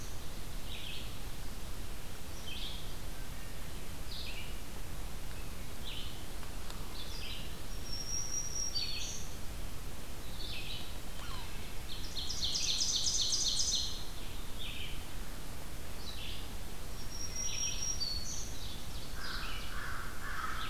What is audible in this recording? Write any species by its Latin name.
Vireo olivaceus, Setophaga virens, Sphyrapicus varius, Seiurus aurocapilla, Corvus brachyrhynchos